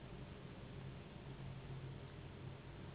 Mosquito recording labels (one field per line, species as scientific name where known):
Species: Anopheles gambiae s.s.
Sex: female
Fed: unfed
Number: one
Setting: insect culture